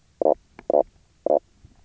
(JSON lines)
{"label": "biophony, knock croak", "recorder": "SoundTrap 300"}